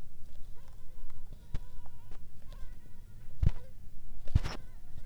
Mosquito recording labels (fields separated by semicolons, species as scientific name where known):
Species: Anopheles funestus s.s.; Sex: female; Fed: blood-fed; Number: one; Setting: cup